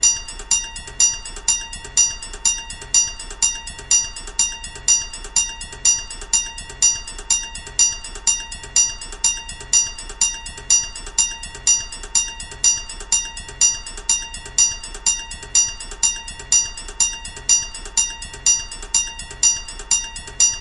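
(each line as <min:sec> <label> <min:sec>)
0:00.0 A loud rhythmic railroad crossing signal sounds. 0:20.6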